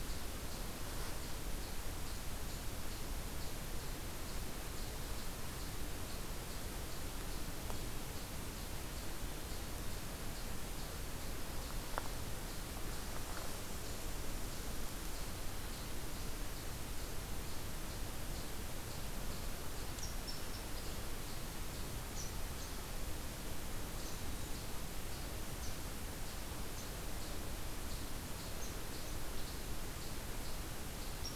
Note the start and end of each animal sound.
[19.85, 31.35] Red Squirrel (Tamiasciurus hudsonicus)

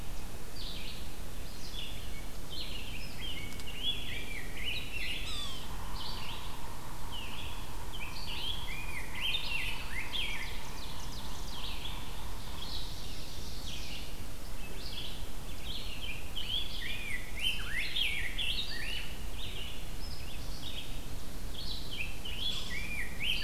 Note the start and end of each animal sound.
[0.00, 23.44] Red-eyed Vireo (Vireo olivaceus)
[3.03, 5.23] Rose-breasted Grosbeak (Pheucticus ludovicianus)
[5.11, 12.87] Yellow-bellied Sapsucker (Sphyrapicus varius)
[7.88, 10.78] Rose-breasted Grosbeak (Pheucticus ludovicianus)
[9.72, 11.67] Ovenbird (Seiurus aurocapilla)
[12.42, 14.04] Ovenbird (Seiurus aurocapilla)
[16.18, 19.07] Rose-breasted Grosbeak (Pheucticus ludovicianus)
[22.19, 23.44] Rose-breasted Grosbeak (Pheucticus ludovicianus)

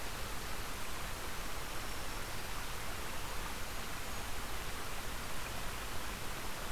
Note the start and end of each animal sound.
[1.47, 2.67] Black-throated Green Warbler (Setophaga virens)
[3.05, 4.35] Golden-crowned Kinglet (Regulus satrapa)

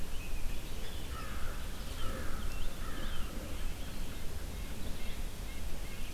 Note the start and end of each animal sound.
[0.00, 4.09] Scarlet Tanager (Piranga olivacea)
[1.01, 3.62] American Crow (Corvus brachyrhynchos)
[3.90, 6.13] Red-breasted Nuthatch (Sitta canadensis)

